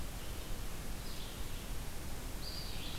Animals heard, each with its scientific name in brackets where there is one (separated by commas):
Red-eyed Vireo (Vireo olivaceus), Eastern Wood-Pewee (Contopus virens)